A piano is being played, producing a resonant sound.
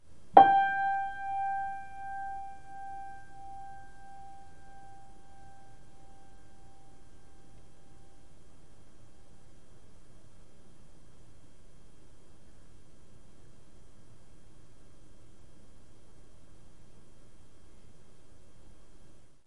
0:00.3 0:08.2

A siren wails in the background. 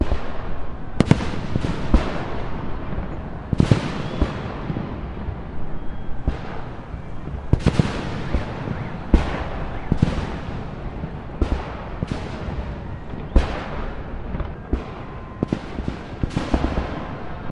0:12.4 0:17.5

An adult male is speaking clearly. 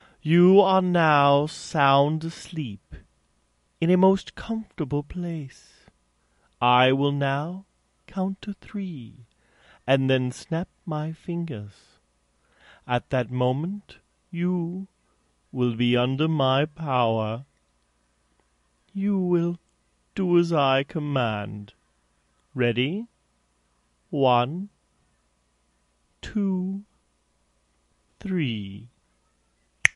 0:00.2 0:03.0, 0:03.8 0:05.4, 0:06.6 0:09.0, 0:09.8 0:11.7, 0:12.9 0:14.8, 0:15.5 0:17.4, 0:18.9 0:21.7, 0:22.6 0:23.1, 0:24.1 0:24.8, 0:26.2 0:26.9, 0:28.2 0:28.9

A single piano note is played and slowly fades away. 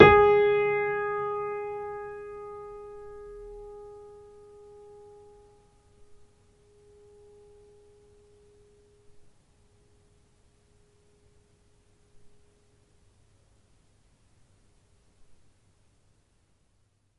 0:00.0 0:09.9

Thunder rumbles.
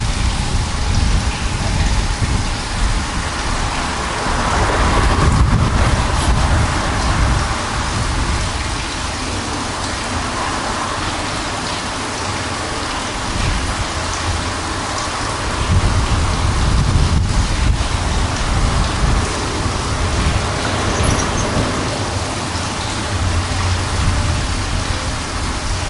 0:04.5 0:07.0, 0:15.6 0:20.1

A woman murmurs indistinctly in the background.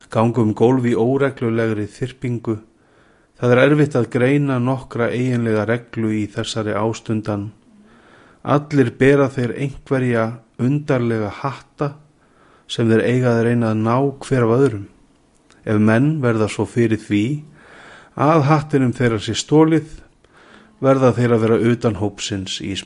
0:07.7 0:08.4, 0:20.7 0:21.3

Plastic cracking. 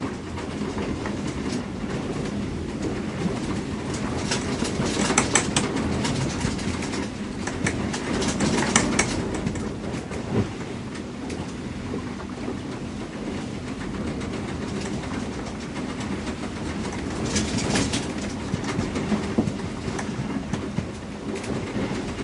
0:04.3 0:09.1

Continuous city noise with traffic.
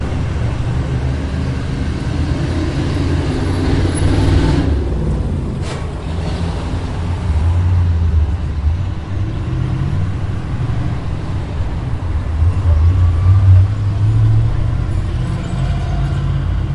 0:06.1 0:16.7

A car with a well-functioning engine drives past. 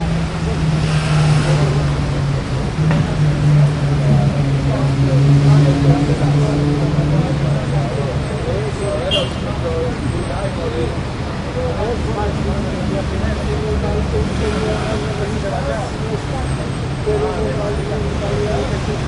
0:00.0 0:08.8

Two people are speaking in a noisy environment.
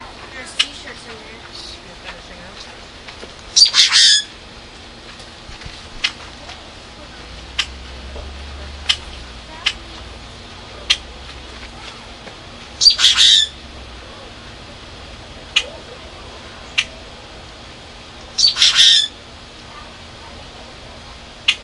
0:00.4 0:03.9

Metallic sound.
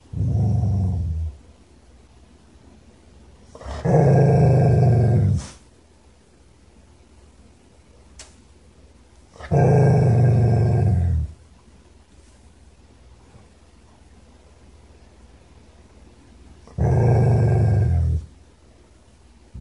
0:08.1 0:08.3

